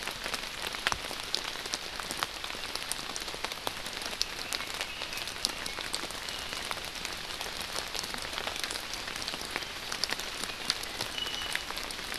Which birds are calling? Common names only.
Red-billed Leiothrix, Iiwi